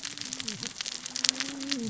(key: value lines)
label: biophony, cascading saw
recorder: SoundTrap 600 or HydroMoth